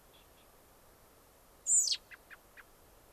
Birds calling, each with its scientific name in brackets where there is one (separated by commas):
American Robin (Turdus migratorius)